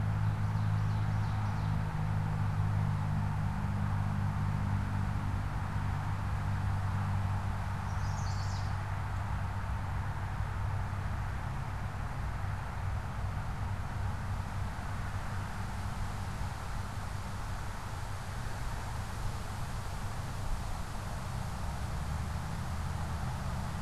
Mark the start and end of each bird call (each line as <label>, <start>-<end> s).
Ovenbird (Seiurus aurocapilla), 0.0-2.0 s
Chestnut-sided Warbler (Setophaga pensylvanica), 7.6-8.8 s